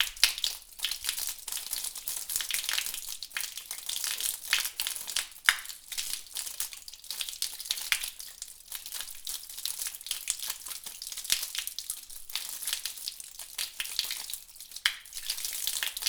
Could oil be frying?
yes